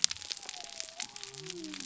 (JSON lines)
{"label": "biophony", "recorder": "SoundTrap 300"}